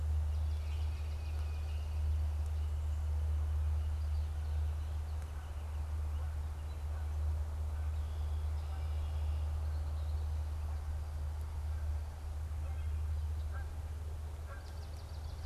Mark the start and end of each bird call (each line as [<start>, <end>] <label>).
[0.20, 2.10] Swamp Sparrow (Melospiza georgiana)
[0.40, 2.20] Tufted Titmouse (Baeolophus bicolor)
[5.50, 14.90] Canada Goose (Branta canadensis)
[7.60, 10.40] Red-winged Blackbird (Agelaius phoeniceus)
[14.40, 15.46] Swamp Sparrow (Melospiza georgiana)